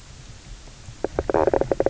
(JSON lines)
{"label": "biophony, knock croak", "recorder": "SoundTrap 300"}